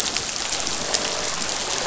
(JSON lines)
{"label": "biophony, croak", "recorder": "SoundTrap 500"}